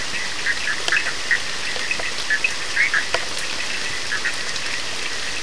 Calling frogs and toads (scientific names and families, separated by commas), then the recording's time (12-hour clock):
Boana bischoffi (Hylidae), Sphaenorhynchus surdus (Hylidae)
12:45am